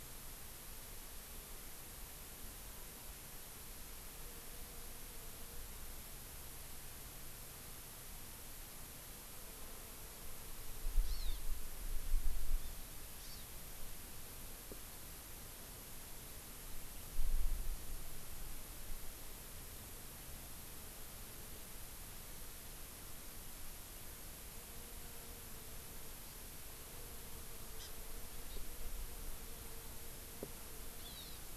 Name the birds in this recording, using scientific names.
Chlorodrepanis virens